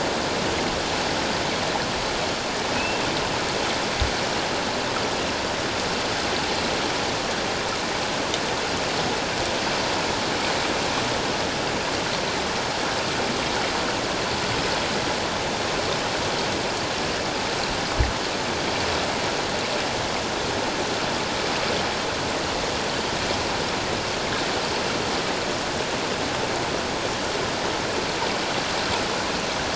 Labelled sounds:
2.7	3.0	killer whale, 2.5 to 2.8 kHz

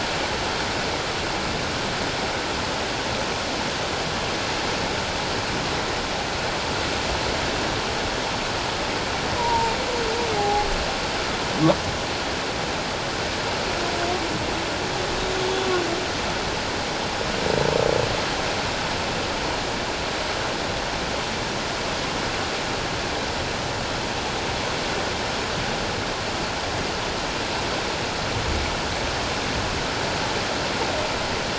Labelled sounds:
9.4	9.7	humpback whale, 0.84 to 1.0 kHz
10.4	10.7	humpback whale, 0.78 to 0.88 kHz
15.4	15.7	humpback whale, 3.3 to 3.5 kHz

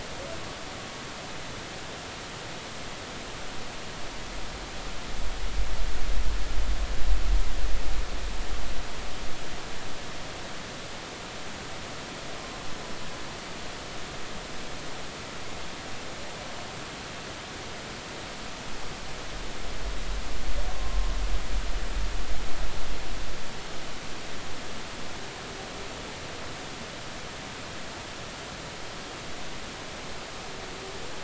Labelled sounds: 20.7	21.0	humpback whale, 0.99 to 1.2 kHz

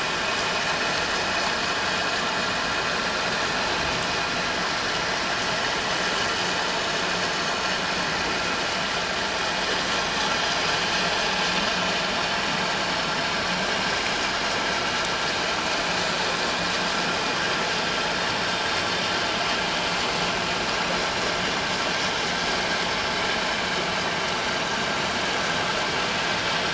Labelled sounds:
11.6	11.9	vessel noise, 6.6 to 6.8 kHz

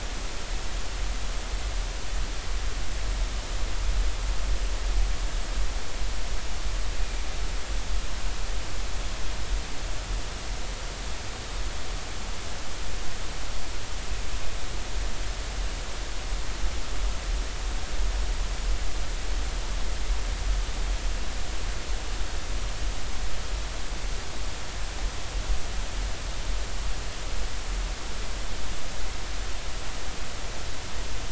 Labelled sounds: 7.0	7.2	killer whale, 2.3 to 2.5 kHz

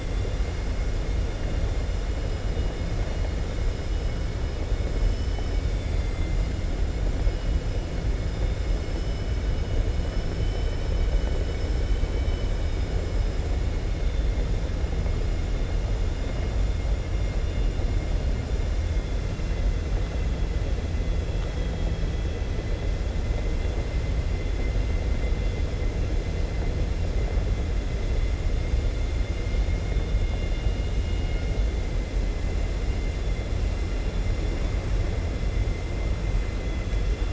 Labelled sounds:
4.9	6.5	vessel noise, 2.1 to 6.1 kHz
10.4	11.1	vessel noise, 2.2 to 3.9 kHz
12.0	12.5	vessel noise, 2.2 to 3.8 kHz
21.3	22.5	vessel noise, 2.0 to 4.1 kHz

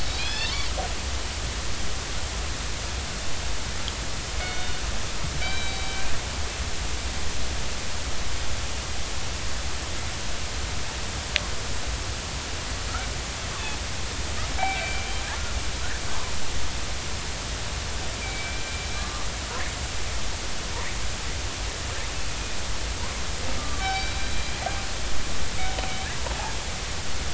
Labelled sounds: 0.2	0.6	killer whale, northern resident, 1.6 to 4.6 kHz
4.4	4.8	killer whale, northern resident, 1.4 to 3.7 kHz
5.4	6.1	killer whale, northern resident, 2.2 to 4.1 kHz
14.6	15.1	killer whale, northern resident, 2.2 to 2.4 kHz
18.2	19.3	killer whale, northern resident, 0.99 to 2.5 kHz
23.6	24.5	killer whale, northern resident, 1.1 to 5.5 kHz

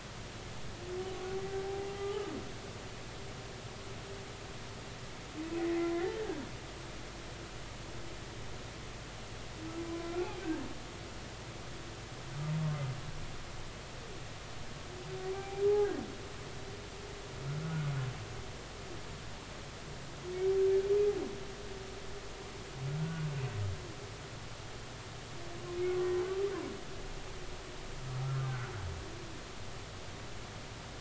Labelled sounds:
2.0	2.3	humpback whale, 1.2 to 1.3 kHz
5.4	6.0	humpback whale, 0.96 to 2.6 kHz
10.1	10.4	humpback whale, 1.3 to 2.6 kHz
15.3	15.6	humpback whale, 0.80 to 0.83 kHz
17.6	17.9	humpback whale, 1.4 to 1.5 kHz
23.0	23.3	humpback whale, 1.4 to 1.5 kHz
28.2	28.7	humpback whale, 1.2 to 1.6 kHz

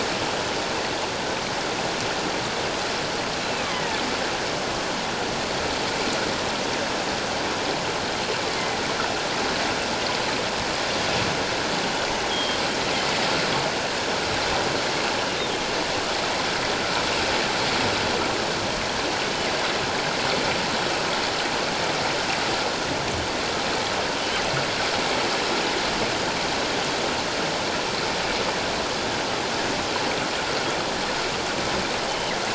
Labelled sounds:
3.4	4.0	killer whale, northern resident, G clan, GG subclan, 1.7 to 2.7 kHz
12.3	12.6	killer whale, northern resident, G clan, GG subclan, 3.1 to 3.4 kHz
32.1	32.3	killer whale, northern resident, G clan, GG subclan, 2.8 to 3.1 kHz

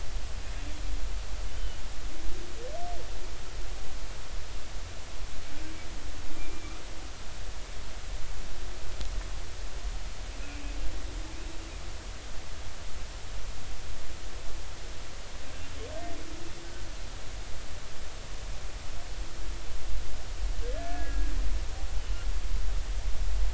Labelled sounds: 1.5	1.8	humpback whale, 2.9 to 3.1 kHz
6.3	6.8	humpback whale, 2.2 to 2.5 kHz
10.4	10.8	humpback whale, 2.4 to 2.6 kHz
20.6	21.3	humpback whale, 1.6 to 1.8 kHz
22.0	22.3	humpback whale, 2.8 to 3.1 kHz

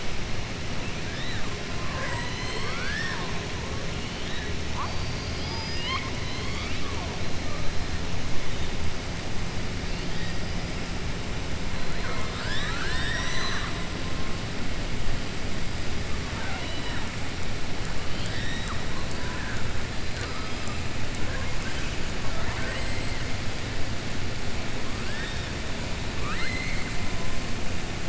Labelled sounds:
1.7	3.3	killer whale, southern resident, 0.50 to 7.9 kHz
4.8	7.1	killer whale, southern resident, 0.70 to 5.3 kHz
11.9	13.8	killer whale, southern resident, 0.69 to 7.9 kHz
16.3	17.0	killer whale, southern resident, 0.73 to 4.0 kHz
22.2	23.2	killer whale, southern resident, 0.52 to 4.7 kHz
26.1	26.9	killer whale, southern resident, 1.2 to 4.4 kHz

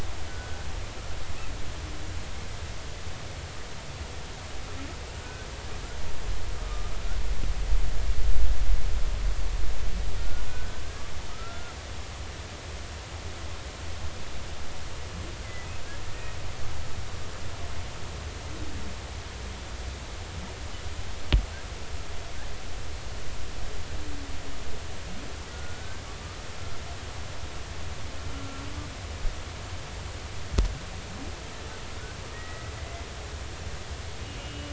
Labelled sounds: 0.3	0.6	humpback whale, 1.4 to 1.5 kHz
5.2	5.5	humpback whale, 1.4 to 1.6 kHz
6.6	6.9	humpback whale, 1.2 to 1.3 kHz
10.2	10.8	humpback whale, 1.4 to 1.6 kHz
11.3	11.7	humpback whale, 1.2 to 1.5 kHz
15.4	15.7	humpback whale, 1.9 to 2.1 kHz
26.5	27.0	humpback whale, 1.4 to 1.6 kHz
28.3	28.6	humpback whale, 1.3 to 1.4 kHz
32.3	32.7	humpback whale, 1.8 to 2.0 kHz
34.4	34.7	humpback whale, 2.8 to 3.0 kHz

